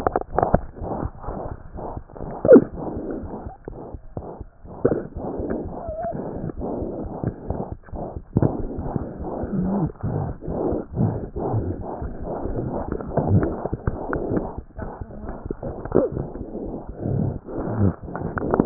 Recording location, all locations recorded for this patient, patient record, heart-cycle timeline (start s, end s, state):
aortic valve (AV)
aortic valve (AV)+pulmonary valve (PV)+tricuspid valve (TV)+mitral valve (MV)
#Age: Infant
#Sex: Female
#Height: 71.0 cm
#Weight: 8.6 kg
#Pregnancy status: False
#Murmur: Present
#Murmur locations: aortic valve (AV)+mitral valve (MV)+pulmonary valve (PV)+tricuspid valve (TV)
#Most audible location: tricuspid valve (TV)
#Systolic murmur timing: Holosystolic
#Systolic murmur shape: Plateau
#Systolic murmur grading: III/VI or higher
#Systolic murmur pitch: High
#Systolic murmur quality: Harsh
#Diastolic murmur timing: nan
#Diastolic murmur shape: nan
#Diastolic murmur grading: nan
#Diastolic murmur pitch: nan
#Diastolic murmur quality: nan
#Outcome: Abnormal
#Campaign: 2015 screening campaign
0.00	2.71	unannotated
2.71	2.78	S1
2.78	2.93	systole
2.93	3.01	S2
3.01	3.20	diastole
3.20	3.28	S1
3.28	3.44	systole
3.44	3.50	S2
3.50	3.68	diastole
3.68	3.75	S1
3.75	3.92	systole
3.92	3.98	S2
3.98	4.15	diastole
4.15	4.23	S1
4.23	4.38	systole
4.38	4.45	S2
4.45	4.64	diastole
4.64	7.47	unannotated
7.47	7.55	S1
7.55	7.71	systole
7.71	7.75	S2
7.75	7.91	diastole
7.91	7.99	S1
7.99	8.15	systole
8.15	8.21	S2
8.21	8.34	diastole
8.34	18.66	unannotated